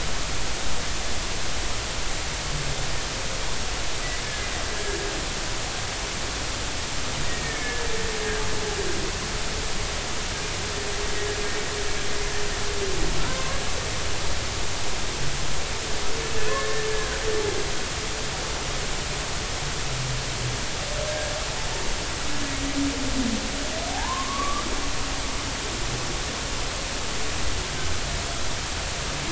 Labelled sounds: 7.3	7.9	humpback whale, 1.7 to 2.0 kHz
13.2	13.6	humpback whale, 0.93 to 1.2 kHz
16.5	17.2	humpback whale, 1.0 to 1.8 kHz
21.1	21.3	humpback whale, 1.6 to 1.7 kHz
23.9	24.7	humpback whale, 0.80 to 1.4 kHz

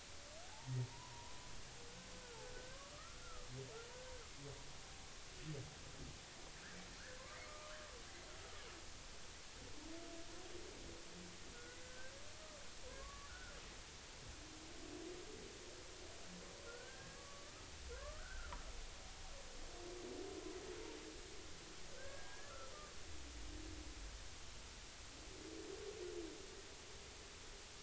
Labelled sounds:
0.4	1.5	humpback whale, 0.80 to 1.1 kHz
2.5	3.5	humpback whale, 1.0 to 1.6 kHz
7.4	7.8	humpback whale, 0.99 to 1.5 kHz
11.8	13.5	humpback whale, 0.96 to 1.6 kHz
16.7	18.6	humpback whale, 1.0 to 1.7 kHz
21.9	22.7	humpback whale, 1.2 to 1.8 kHz

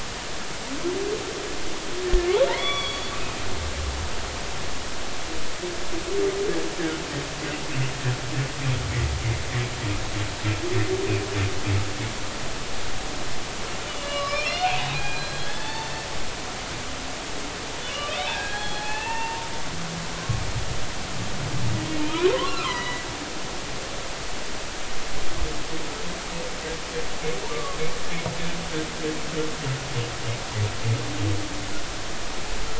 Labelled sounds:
2.5	3.1	humpback whale, 1.0 to 4.7 kHz
13.9	16.1	humpback whale, 0.83 to 5.8 kHz
17.9	19.5	humpback whale, 0.80 to 4.3 kHz
22.0	23.1	humpback whale, 0.86 to 4.2 kHz
27.5	27.8	humpback whale, 1.1 to 1.2 kHz

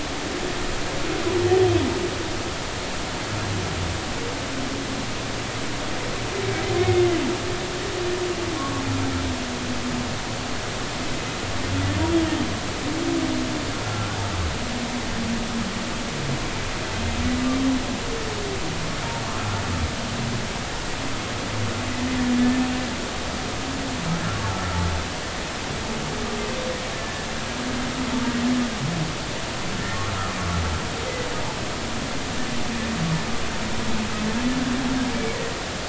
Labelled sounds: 6.8	7.0	humpback whale, 2.1 to 2.2 kHz
8.6	8.8	humpback whale, 0.96 to 1.2 kHz
13.8	14.1	humpback whale, 1.3 to 1.4 kHz
24.5	24.8	humpback whale, 1.3 to 1.4 kHz

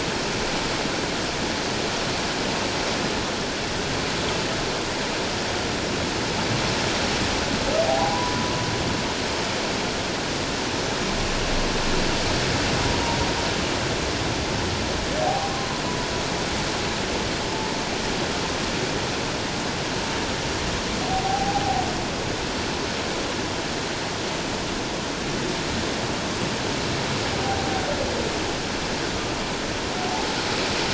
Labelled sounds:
7.8	8.4	humpback whale, 0.78 to 1.1 kHz
15.2	15.5	humpback whale, 0.78 to 0.84 kHz
21.0	21.6	humpback whale, 0.78 to 0.88 kHz

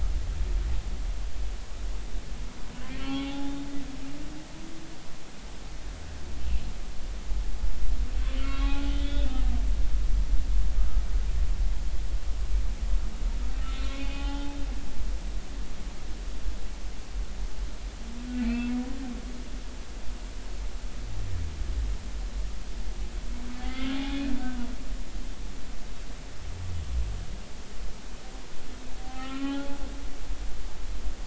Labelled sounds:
3.0	3.7	humpback whale, 0.80 to 3.7 kHz
8.4	9.4	humpback whale, 0.80 to 4.0 kHz
13.6	14.6	humpback whale, 0.80 to 3.9 kHz
18.4	18.7	humpback whale, 2.2 to 2.7 kHz
23.6	24.0	humpback whale, 1.2 to 2.2 kHz
29.0	29.8	humpback whale, 0.80 to 3.1 kHz

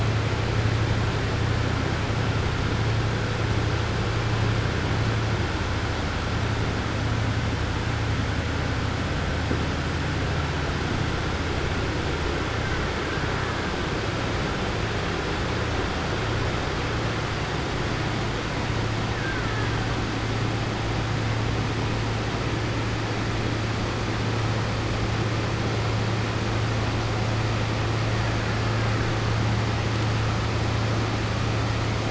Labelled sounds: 19.1	19.7	killer whale, Bigg's (transient), 1.3 to 2.2 kHz

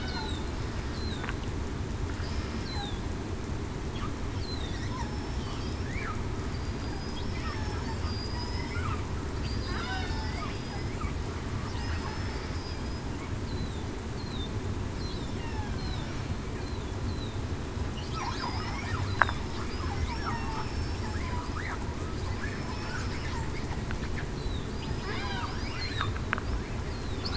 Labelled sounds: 0.0	0.5	killer whale, southern resident, 3.5 to 4.3 kHz
0.9	1.3	killer whale, southern resident, 3.5 to 4.1 kHz
2.6	3.0	killer whale, southern resident, 3.4 to 4.2 kHz
4.8	5.4	killer whale, southern resident, 5.2 to 5.4 kHz
6.8	7.3	killer whale, southern resident, 4.8 to 5.1 kHz
9.4	10.8	killer whale, southern resident, 1.7 to 5.2 kHz
12.5	13.0	killer whale, southern resident, 4.8 to 5.1 kHz
15.4	15.8	killer whale, southern resident, 1.5 to 1.9 kHz
18.4	18.8	killer whale, southern resident, 4.7 to 5.4 kHz
19.1	19.4	killer whale, southern resident, 3.4 to 4.1 kHz
20.5	21.0	killer whale, southern resident, 5.3 to 5.4 kHz
22.5	23.0	killer whale, southern resident, 5.2 to 5.4 kHz
24.8	25.2	killer whale, southern resident, 4.9 to 5.2 kHz

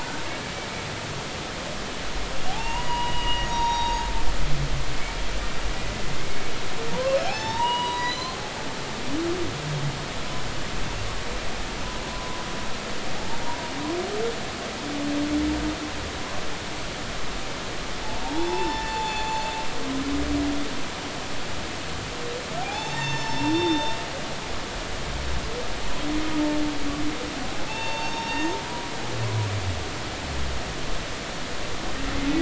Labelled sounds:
2.5	4.1	humpback whale, 0.80 to 4.9 kHz
6.9	8.4	humpback whale, 0.80 to 6.5 kHz
12.1	12.4	humpback whale, 0.93 to 1.1 kHz
18.0	19.3	humpback whale, 0.80 to 3.6 kHz
22.6	24.0	humpback whale, 0.80 to 6.4 kHz
27.7	28.6	humpback whale, 0.80 to 6.4 kHz

